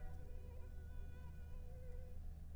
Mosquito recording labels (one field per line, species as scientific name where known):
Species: Anopheles arabiensis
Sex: female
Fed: unfed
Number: one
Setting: cup